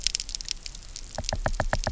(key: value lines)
label: biophony, knock
recorder: SoundTrap 300